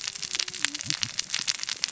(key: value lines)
label: biophony, cascading saw
recorder: SoundTrap 600 or HydroMoth